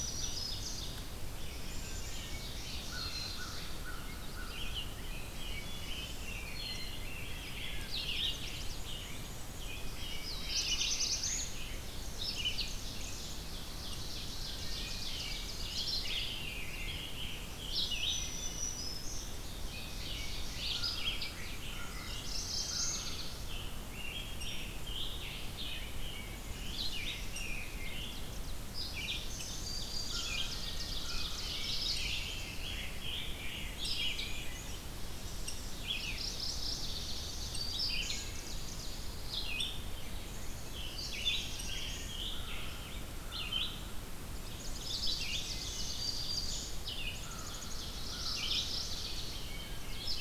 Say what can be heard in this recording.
Black-throated Green Warbler, Ovenbird, Red-eyed Vireo, Wood Thrush, American Crow, Rose-breasted Grosbeak, Black-capped Chickadee, Chestnut-sided Warbler, Black-and-white Warbler, Black-throated Blue Warbler, Scarlet Tanager, Mourning Warbler, unknown woodpecker